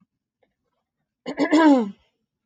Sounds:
Throat clearing